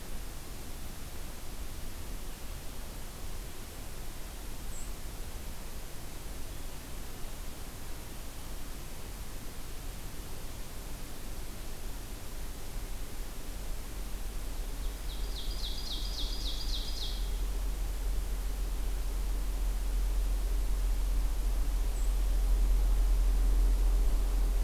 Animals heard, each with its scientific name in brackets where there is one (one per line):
Ovenbird (Seiurus aurocapilla)